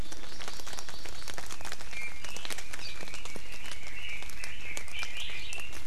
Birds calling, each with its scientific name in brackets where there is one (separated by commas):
Hawaii Amakihi (Chlorodrepanis virens), Red-billed Leiothrix (Leiothrix lutea), Iiwi (Drepanis coccinea)